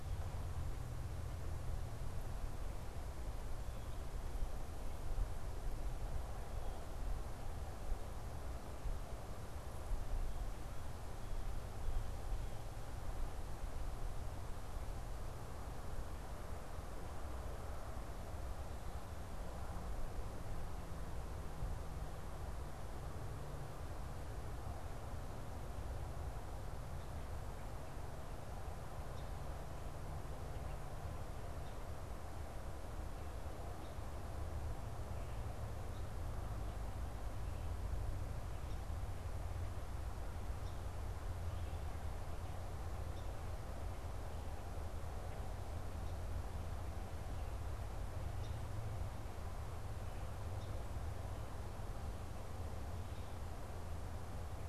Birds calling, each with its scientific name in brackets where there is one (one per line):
Song Sparrow (Melospiza melodia)